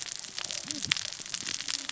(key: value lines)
label: biophony, cascading saw
recorder: SoundTrap 600 or HydroMoth